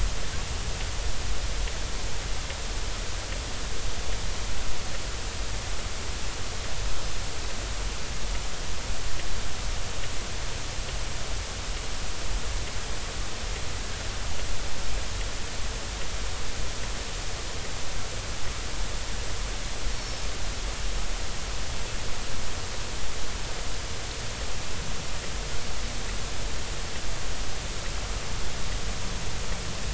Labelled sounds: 19.9	20.2	Pacific white-sided dolphin, 5.4 to 5.7 kHz

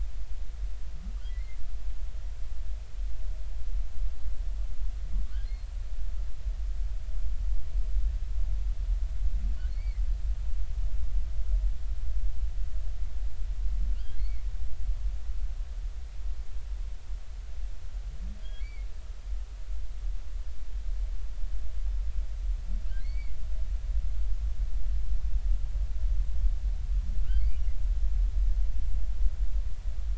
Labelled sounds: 1.3	1.6	humpback whale, 1.9 to 2.2 kHz
9.7	10.0	humpback whale, 1.9 to 2.4 kHz
13.9	14.4	humpback whale, 2.0 to 3.4 kHz
18.4	18.9	humpback whale, 2.1 to 3.4 kHz
23.0	23.4	humpback whale, 2.0 to 4.6 kHz

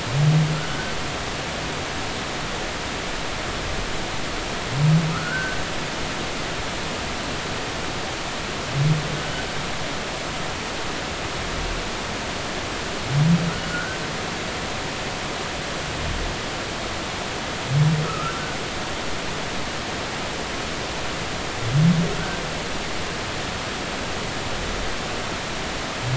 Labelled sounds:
0.6	0.9	humpback whale, 1.3 to 1.6 kHz
5.1	5.6	humpback whale, 1.2 to 1.6 kHz
13.6	14.0	humpback whale, 1.3 to 1.6 kHz
18.1	18.4	humpback whale, 1.2 to 1.6 kHz
22.1	22.4	humpback whale, 1.3 to 1.6 kHz

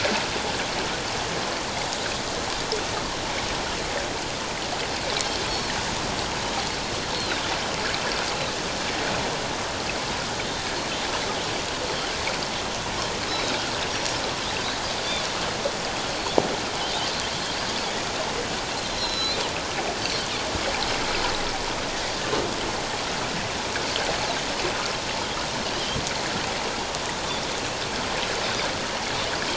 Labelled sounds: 7.1	7.5	Pacific white-sided dolphin, 3.5 to 4.3 kHz
13.3	13.6	Pacific white-sided dolphin, 3.7 to 4.0 kHz
19.0	19.4	Pacific white-sided dolphin, 3.9 to 5.6 kHz

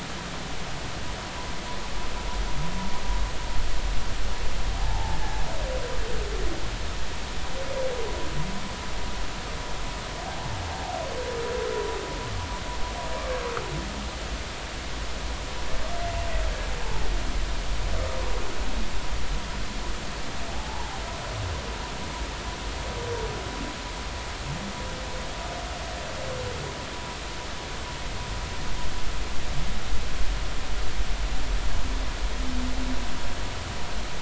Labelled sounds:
4.8	5.2	humpback whale, 0.80 to 0.93 kHz
10.3	10.5	humpback whale, 0.80 to 0.93 kHz
13.2	13.4	humpback whale, 1.0 to 1.2 kHz
20.5	21.0	humpback whale, 0.80 to 1.0 kHz

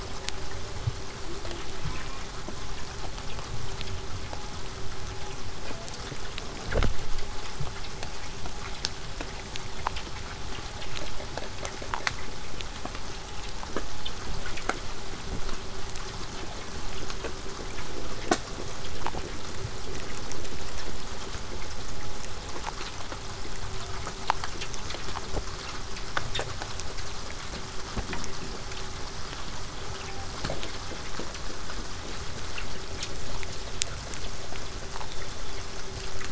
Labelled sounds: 1.7	2.3	killer whale, southern resident, J pod, call S04, 0.08 to 2.6 kHz
35.0	35.7	killer whale, southern resident, whistle, 3.1 to 3.9 kHz

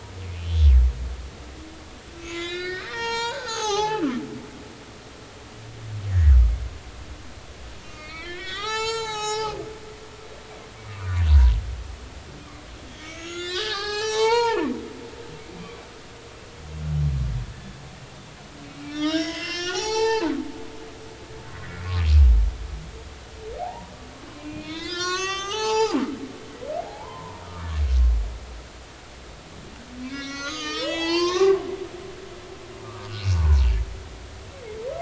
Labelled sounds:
2.2	4.1	humpback whale, 0.80 to 7.6 kHz
6.1	6.3	humpback whale, 1.6 to 2.0 kHz
7.8	9.6	humpback whale, 0.80 to 8.0 kHz
10.9	11.6	humpback whale, 0.90 to 1.3 kHz
12.9	14.7	humpback whale, 0.80 to 8.0 kHz
18.9	21.3	humpback whale, 0.80 to 7.6 kHz
23.6	26.0	humpback whale, 0.80 to 7.9 kHz
26.8	27.5	humpback whale, 0.80 to 1.1 kHz
30.0	31.6	humpback whale, 0.80 to 7.6 kHz
32.8	33.6	humpback whale, 0.83 to 1.3 kHz

